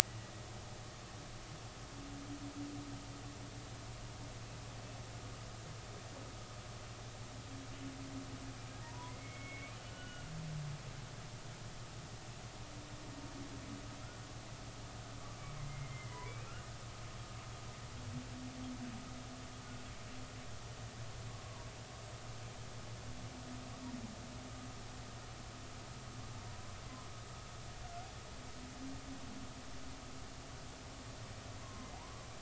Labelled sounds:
8.8	10.3	humpback whale, 0.86 to 3.0 kHz
15.2	16.3	humpback whale, 0.93 to 2.2 kHz
21.3	21.7	humpback whale, 0.90 to 1.2 kHz
26.5	26.8	humpback whale, 0.93 to 1.1 kHz
31.6	31.9	humpback whale, 0.99 to 1.1 kHz

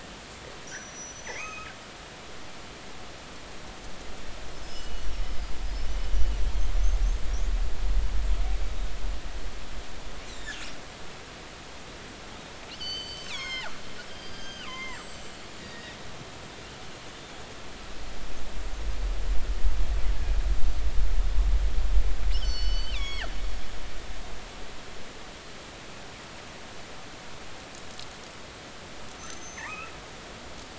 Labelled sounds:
0.7	1.7	killer whale, northern resident, G clan, GI subclan, call N23i, 1.2 to 6.5 kHz
4.5	5.4	killer whale, northern resident, G clan, 2.9 to 6.0 kHz
6.5	6.7	killer whale, northern resident, G clan, 3.1 to 3.3 kHz
10.4	10.7	killer whale, northern resident, G clan, 1.3 to 1.9 kHz
12.7	15.4	killer whale, northern resident, G clan, GG subclan, call N23ii, 0.90 to 8.0 kHz
15.6	16.0	killer whale, northern resident, G clan, call N24ii, 1.7 to 3.9 kHz
22.3	23.3	killer whale, northern resident, G clan, GG subclan, call N23ii, 1.1 to 6.2 kHz
29.2	29.9	killer whale, northern resident, G clan, GI subclan, call N23i, 0.83 to 6.3 kHz

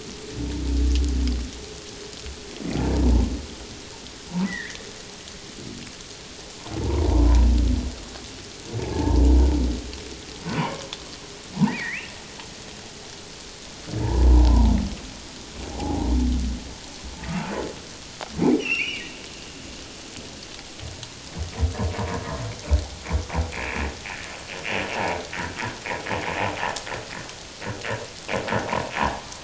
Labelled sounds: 4.4	4.8	humpback whale, 1.6 to 2.1 kHz
6.8	7.5	humpback whale, 0.81 to 1.1 kHz
8.9	9.2	humpback whale, 0.81 to 1.8 kHz
10.5	12.1	humpback whale, 0.78 to 2.9 kHz
14.0	14.7	humpback whale, 0.81 to 1.1 kHz
15.8	16.1	humpback whale, 0.78 to 0.97 kHz
18.6	19.0	humpback whale, 2.1 to 5.9 kHz
23.5	23.8	humpback whale, 2.2 to 2.7 kHz
24.9	25.6	humpback whale, 0.78 to 2.0 kHz

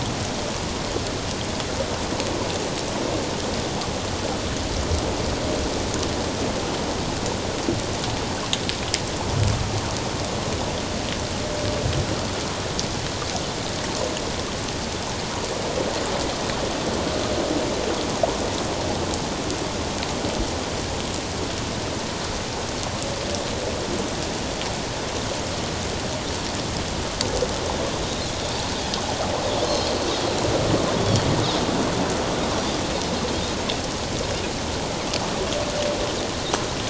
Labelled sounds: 29.6	29.9	Pacific white-sided dolphin, 4.1 to 4.3 kHz
31.0	31.3	Pacific white-sided dolphin, 3.2 to 4.6 kHz

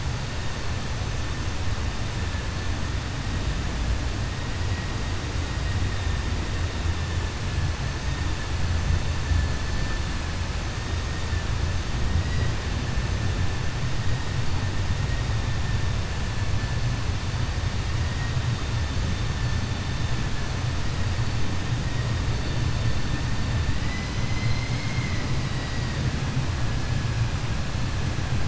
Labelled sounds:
24.2	25.3	vessel noise, 1.9 to 5.3 kHz

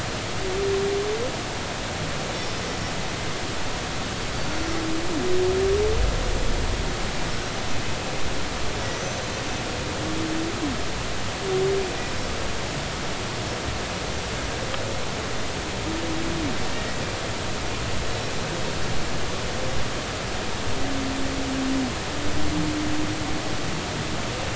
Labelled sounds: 8.9	9.2	humpback whale, 5.7 to 6.2 kHz

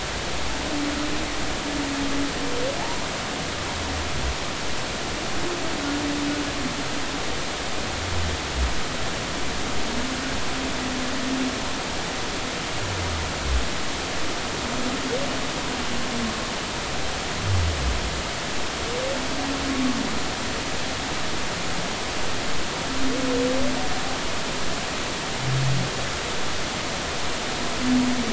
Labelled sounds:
2.8	3.1	humpback whale, 0.80 to 1.0 kHz

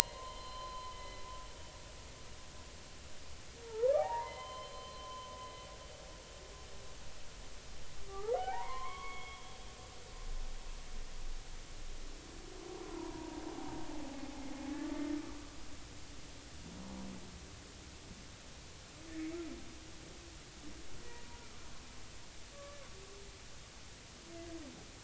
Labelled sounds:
0.0	1.2	humpback whale, 0.90 to 4.2 kHz
3.6	5.3	humpback whale, 0.80 to 4.2 kHz
8.1	9.5	humpback whale, 0.80 to 3.4 kHz
12.9	13.4	humpback whale, 0.90 to 1.1 kHz
19.1	19.4	humpback whale, 2.1 to 2.4 kHz
21.0	21.3	humpback whale, 1.9 to 2.0 kHz
22.5	22.8	humpback whale, 1.1 to 1.2 kHz

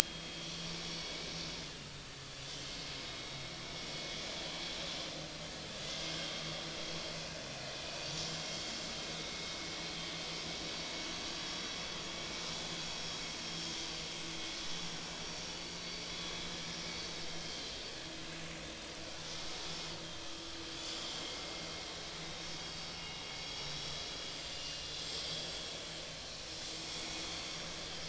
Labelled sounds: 0.7	1.5	vessel noise, 3.2 to 5.6 kHz
3.0	3.5	vessel noise, 3.7 to 3.8 kHz
6.0	6.4	vessel noise, 3.1 to 3.3 kHz
7.9	8.6	vessel noise, 2.1 to 4.7 kHz
11.4	11.7	vessel noise, 5.5 to 5.6 kHz
13.4	13.8	vessel noise, 5.3 to 5.5 kHz
14.6	15.4	vessel noise, 4.4 to 5.6 kHz
17.5	17.7	vessel noise, 4.0 to 4.3 kHz
20.8	21.3	vessel noise, 3.3 to 7.5 kHz
22.3	22.6	vessel noise, 5.3 to 5.4 kHz
22.9	23.7	vessel noise, 2.8 to 5.6 kHz
24.3	25.4	vessel noise, 2.7 to 7.7 kHz

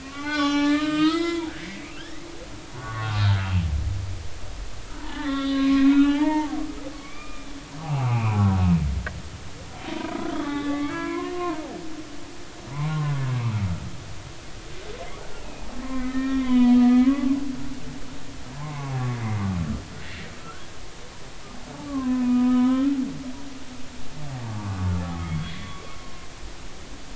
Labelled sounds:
0.0	2.2	humpback whale, 0.80 to 7.2 kHz
2.8	3.3	humpback whale, 1.0 to 1.2 kHz
5.0	8.4	humpback whale, 0.80 to 4.7 kHz
9.9	11.6	humpback whale, 0.90 to 4.0 kHz
12.7	13.2	humpback whale, 0.86 to 1.2 kHz
15.9	17.4	humpback whale, 0.93 to 3.5 kHz
18.6	19.0	humpback whale, 0.80 to 1.2 kHz
21.9	23.0	humpback whale, 0.96 to 3.6 kHz
24.5	25.8	humpback whale, 1.1 to 3.5 kHz

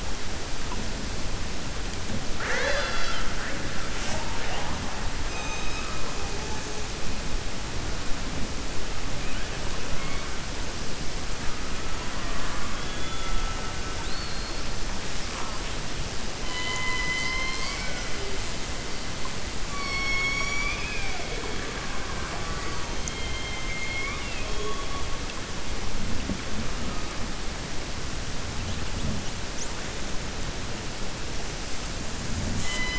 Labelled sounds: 2.3	3.6	killer whale, 0.51 to 6.9 kHz
12.0	13.4	killer whale, 0.69 to 3.5 kHz
13.9	14.6	killer whale, 3.7 to 4.5 kHz
16.4	18.1	killer whale, 0.62 to 7.2 kHz
19.6	21.3	killer whale, 0.72 to 6.8 kHz
23.0	24.5	killer whale, 1.2 to 4.2 kHz

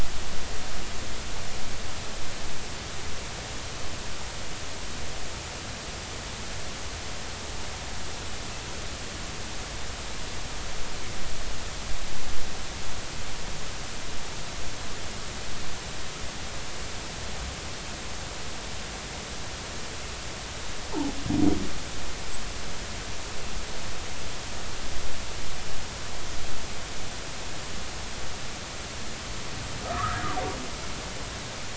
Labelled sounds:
29.8	30.2	humpback whale, 1.1 to 1.4 kHz

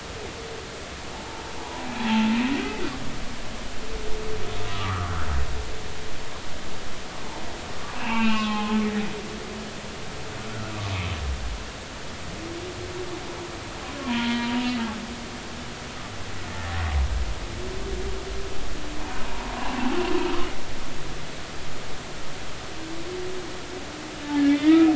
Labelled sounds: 1.1	2.3	humpback whale, 0.80 to 3.4 kHz
4.6	5.3	humpback whale, 1.1 to 1.7 kHz
8.0	8.8	humpback whale, 0.80 to 3.0 kHz
10.5	10.7	humpback whale, 1.3 to 1.5 kHz
14.0	14.6	humpback whale, 0.90 to 3.3 kHz
19.0	19.3	humpback whale, 0.80 to 1.1 kHz
24.5	24.9	humpback whale, 1.2 to 2.6 kHz

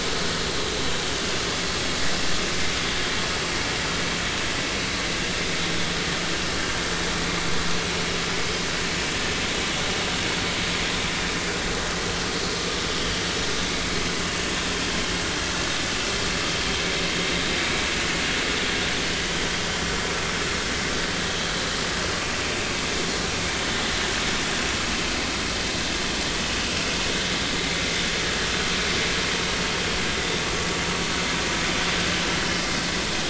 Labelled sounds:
11.9	12.2	vessel noise, 3.0 to 3.2 kHz

